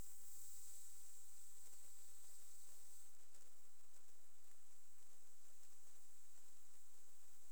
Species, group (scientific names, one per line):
Platycleis albopunctata
Orthoptera